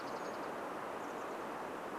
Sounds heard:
Dark-eyed Junco song, Chestnut-backed Chickadee call

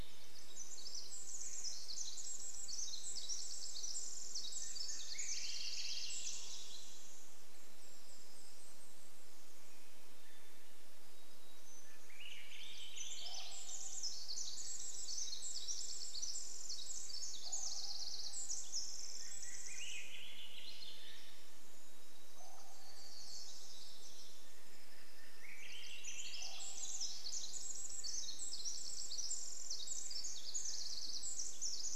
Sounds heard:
Golden-crowned Kinglet song, Swainson's Thrush song, Pacific Wren song, Common Raven call, Black-capped Chickadee song, warbler song

